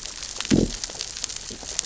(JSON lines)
{"label": "biophony, growl", "recorder": "SoundTrap 600 or HydroMoth"}